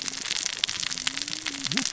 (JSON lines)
{"label": "biophony, cascading saw", "recorder": "SoundTrap 600 or HydroMoth"}